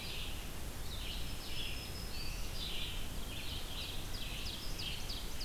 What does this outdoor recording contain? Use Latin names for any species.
Vireo olivaceus, Setophaga virens, Seiurus aurocapilla